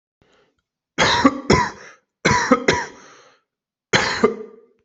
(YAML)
expert_labels:
- quality: good
  cough_type: dry
  dyspnea: false
  wheezing: false
  stridor: false
  choking: false
  congestion: false
  nothing: true
  diagnosis: upper respiratory tract infection
  severity: mild
age: 25
gender: male
respiratory_condition: false
fever_muscle_pain: false
status: healthy